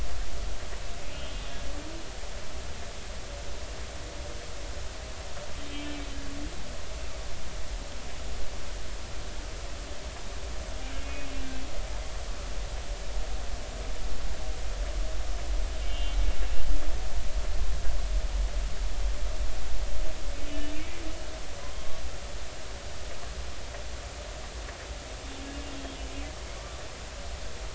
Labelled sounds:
5.7	5.9	humpback whale, 2.6 to 2.7 kHz
15.8	16.2	humpback whale, 2.8 to 3.2 kHz
21.6	22.0	humpback whale, 0.96 to 1.2 kHz
26.6	26.8	humpback whale, 1.1 to 1.2 kHz

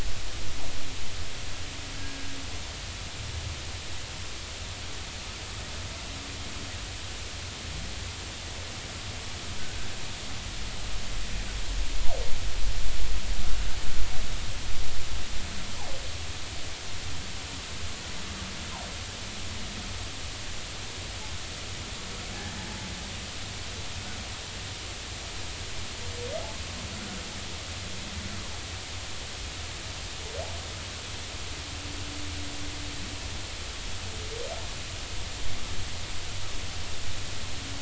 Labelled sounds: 2.0	2.3	humpback whale, 1.6 to 1.7 kHz

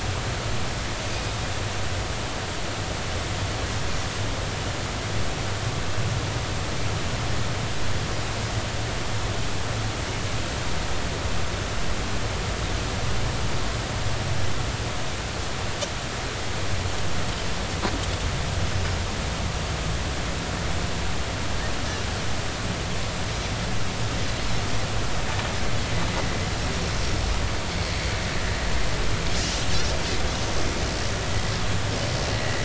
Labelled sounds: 32.3	32.6	Pacific white-sided dolphin, 1.9 to 2.0 kHz

